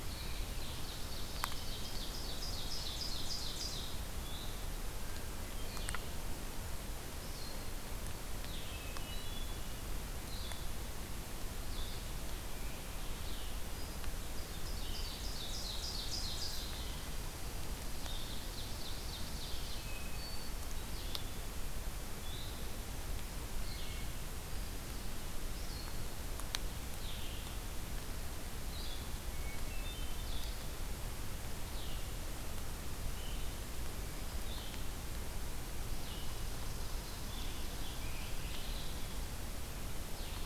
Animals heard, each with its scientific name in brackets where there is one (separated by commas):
Hermit Thrush (Catharus guttatus), Blue-headed Vireo (Vireo solitarius), Ovenbird (Seiurus aurocapilla), Red Squirrel (Tamiasciurus hudsonicus)